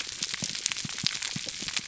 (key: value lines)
label: biophony, pulse
recorder: SoundTrap 300